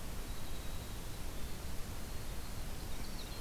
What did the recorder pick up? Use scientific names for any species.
Troglodytes hiemalis, Catharus ustulatus